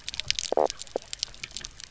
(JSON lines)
{"label": "biophony, knock croak", "recorder": "SoundTrap 300"}